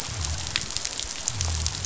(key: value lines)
label: biophony
recorder: SoundTrap 500